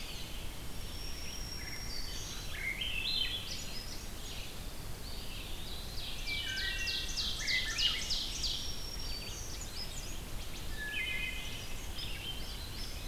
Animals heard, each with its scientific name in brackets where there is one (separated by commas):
Ovenbird (Seiurus aurocapilla), Wood Thrush (Hylocichla mustelina), Black-throated Green Warbler (Setophaga virens), Red-eyed Vireo (Vireo olivaceus), Eastern Wood-Pewee (Contopus virens), Swainson's Thrush (Catharus ustulatus)